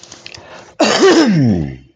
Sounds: Throat clearing